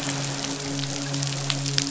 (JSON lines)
{"label": "biophony, midshipman", "recorder": "SoundTrap 500"}